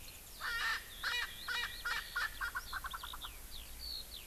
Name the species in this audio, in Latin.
Alauda arvensis, Pternistis erckelii